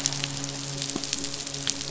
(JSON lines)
{"label": "biophony, midshipman", "recorder": "SoundTrap 500"}